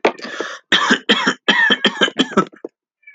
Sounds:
Cough